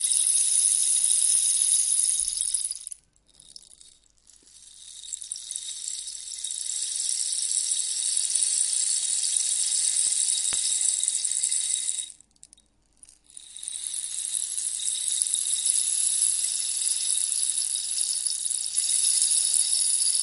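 Rainfall rattling. 0:00.0 - 0:03.1
Rainfall rattling. 0:04.8 - 0:12.3
Rainfall rattling. 0:13.3 - 0:20.2

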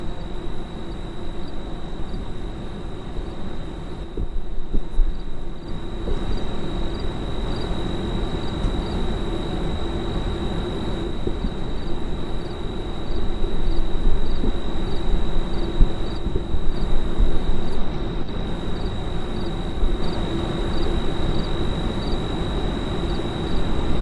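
Grasshoppers chirping. 0:00.0 - 0:24.0
A lawnmower is working in the distance. 0:00.0 - 0:24.0
Muffled thumping noise. 0:04.0 - 0:05.2
Muffled thumping noise. 0:11.1 - 0:11.7
Muffled thumping noise. 0:15.7 - 0:16.0

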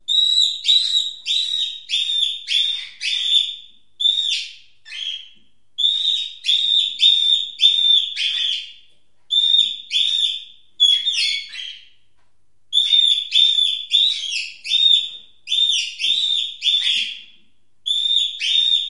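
Repeated high-pitched parrot screams. 0:00.0 - 0:03.7
A parrot emits a high-pitched scream. 0:03.9 - 0:05.3
Repeated high-pitched screams from a parrot. 0:05.7 - 0:12.0
Repeated high-pitched screams from a parrot. 0:12.6 - 0:18.9

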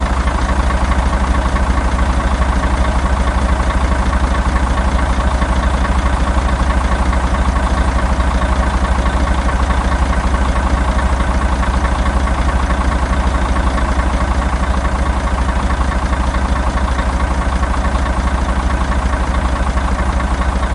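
A deep, constant drone of a bus engine. 0:00.0 - 0:20.7

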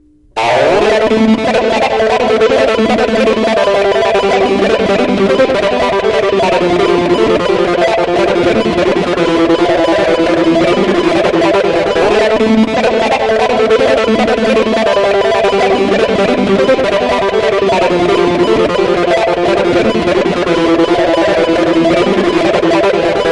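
Bass guitar playing a rhythmic metallic sound repeatedly. 0:00.0 - 0:23.3

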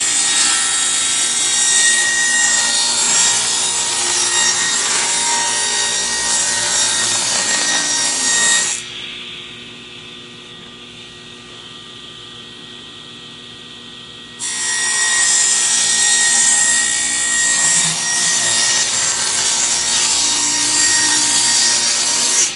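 A table saw cuts through an item continuously with a loud, buzzing, and uniform sound. 0:00.0 - 0:08.9
A table saw emits a continuous muffled humming sound. 0:08.9 - 0:14.4
A table saw cuts through an item continuously with a loud, buzzing, and uniform sound. 0:14.4 - 0:22.6

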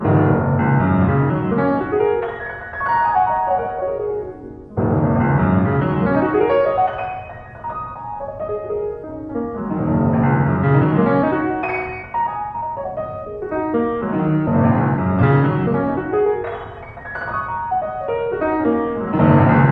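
A piano plays loudly and randomly. 0:00.0 - 0:19.7

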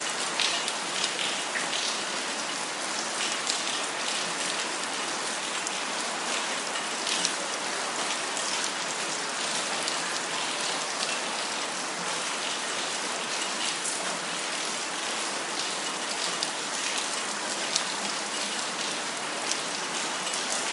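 It is raining. 0:00.1 - 0:20.7

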